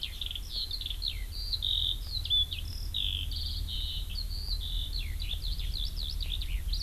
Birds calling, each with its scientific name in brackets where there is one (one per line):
Eurasian Skylark (Alauda arvensis)